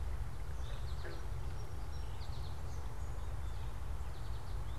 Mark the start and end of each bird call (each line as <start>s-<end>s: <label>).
0.0s-0.9s: American Robin (Turdus migratorius)
0.0s-1.0s: Eastern Towhee (Pipilo erythrophthalmus)
0.0s-4.8s: American Goldfinch (Spinus tristis)